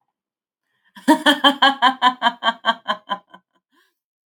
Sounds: Laughter